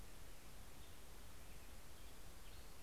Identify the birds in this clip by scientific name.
Pheucticus melanocephalus